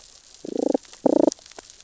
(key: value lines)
label: biophony, damselfish
recorder: SoundTrap 600 or HydroMoth